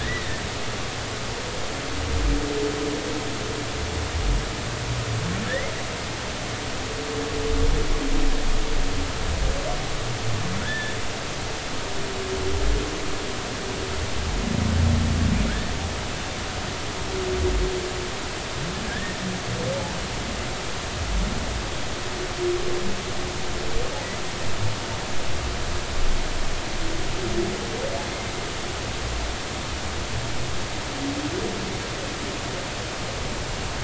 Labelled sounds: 0.0	0.4	humpback whale, 1.6 to 2.0 kHz
5.5	5.7	humpback whale, 1.6 to 2.2 kHz
10.6	10.9	humpback whale, 1.4 to 1.8 kHz
18.9	19.2	humpback whale, 1.5 to 1.9 kHz

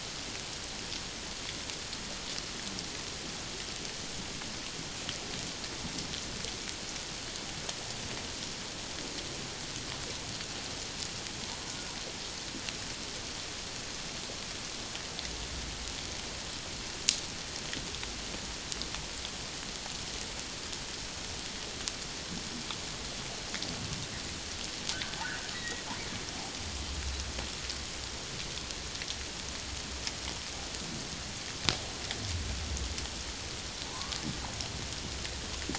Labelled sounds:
25.5	25.8	humpback whale, 1.8 to 2.0 kHz
33.8	34.2	humpback whale, 0.88 to 1.2 kHz

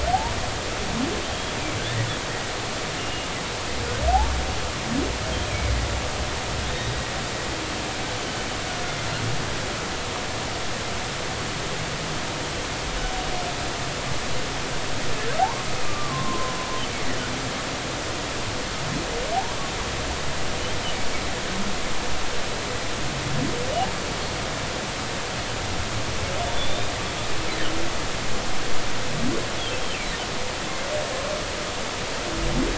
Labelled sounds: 1.2	2.1	humpback whale, 1.5 to 3.4 kHz
3.0	3.3	humpback whale, 2.8 to 2.9 kHz
5.4	5.7	humpback whale, 2.1 to 2.6 kHz
6.7	7.0	humpback whale, 3.6 to 3.8 kHz
15.4	16.6	humpback whale, 0.80 to 1.2 kHz

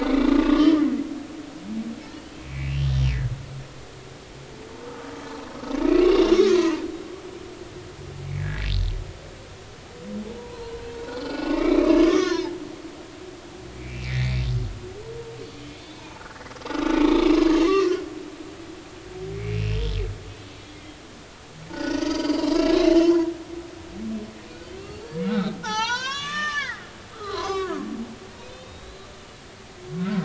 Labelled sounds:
0.0	0.9	humpback whale, 1.0 to 3.2 kHz
2.3	2.6	humpback whale, 2.4 to 2.7 kHz
2.9	3.1	humpback whale, 5.5 to 5.7 kHz
4.8	5.1	humpback whale, 1.1 to 1.4 kHz
6.5	6.8	humpback whale, 0.86 to 2.0 kHz
8.3	8.6	humpback whale, 1.5 to 2.4 kHz
10.3	10.8	humpback whale, 0.83 to 1.1 kHz
11.2	13.4	humpback whale, 0.83 to 5.7 kHz
13.8	14.4	humpback whale, 1.7 to 2.5 kHz
15.8	16.2	humpback whale, 0.83 to 3.6 kHz
17.4	18.0	humpback whale, 0.96 to 6.8 kHz
19.3	19.8	humpback whale, 2.1 to 2.9 kHz
20.7	21.0	humpback whale, 2.0 to 2.2 kHz
21.7	23.3	humpback whale, 0.86 to 6.1 kHz
24.4	27.8	humpback whale, 0.80 to 7.0 kHz
28.5	29.0	humpback whale, 3.5 to 4.1 kHz

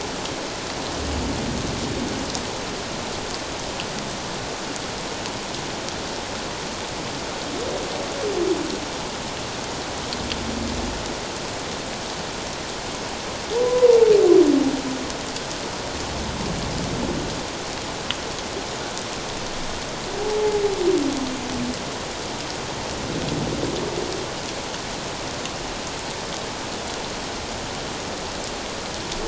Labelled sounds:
13.6	14.0	humpback whale, 0.88 to 1.1 kHz

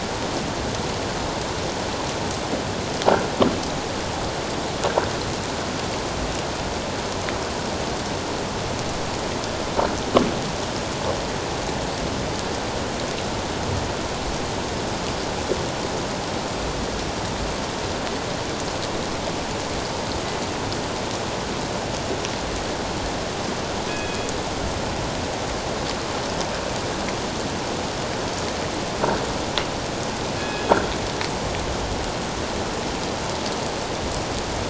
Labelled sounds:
23.9	24.3	killer whale, northern resident, G clan, call N24ii, 2.5 to 3.4 kHz
30.4	30.7	killer whale, northern resident, G clan, call N24ii, 1.6 to 5.1 kHz

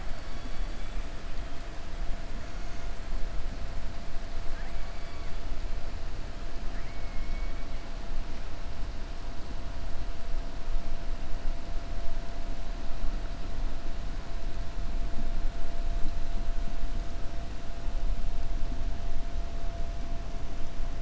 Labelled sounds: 6.6	7.6	killer whale, 1.3 to 2.6 kHz

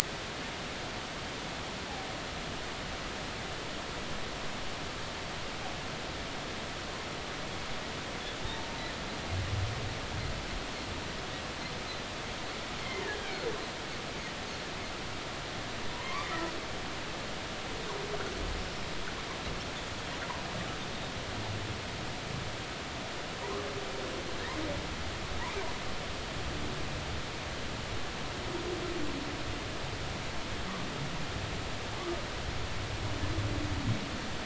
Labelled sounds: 8.4	8.7	humpback whale, 0.83 to 0.96 kHz
12.8	13.1	humpback whale, 2.0 to 2.2 kHz
15.9	16.3	humpback whale, 0.90 to 1.2 kHz

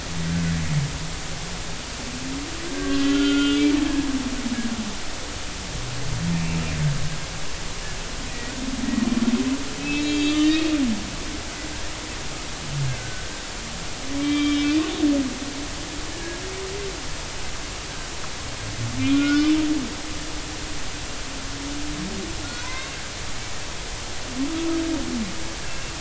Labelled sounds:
2.7	3.7	humpback whale, 1.3 to 3.6 kHz
6.3	6.6	humpback whale, 2.3 to 2.8 kHz
9.8	10.7	humpback whale, 1.8 to 6.8 kHz
12.9	14.8	humpback whale, 1.1 to 3.6 kHz
16.1	16.4	humpback whale, 1.6 to 1.8 kHz
19.0	19.5	humpback whale, 1.4 to 5.2 kHz
22.4	23.0	humpback whale, 1.3 to 2.8 kHz

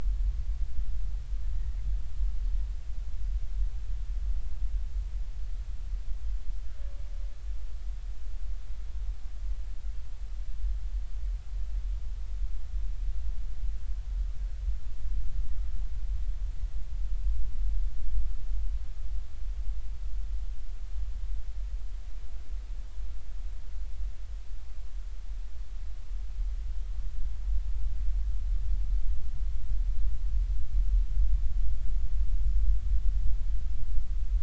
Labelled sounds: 1.5	1.8	killer whale, Bigg's (transient), 1.8 to 2.0 kHz

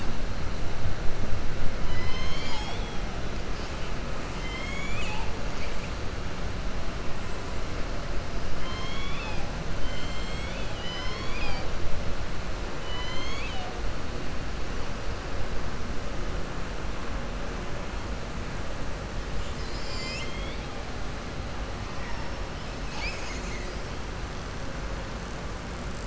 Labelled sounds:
4.3	5.3	killer whale, southern resident, 0.88 to 7.8 kHz
8.6	9.4	killer whale, southern resident, 0.87 to 6.7 kHz
9.8	11.7	killer whale, southern resident, 0.79 to 7.7 kHz
12.8	13.7	killer whale, southern resident, 0.76 to 7.3 kHz

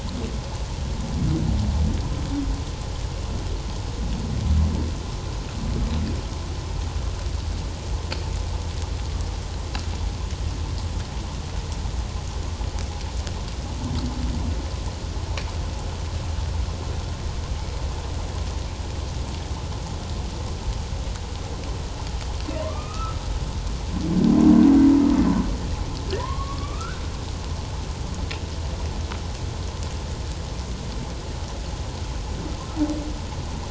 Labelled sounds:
22.6	23.2	humpback whale, 0.91 to 2.7 kHz
26.2	27.0	humpback whale, 0.91 to 1.6 kHz

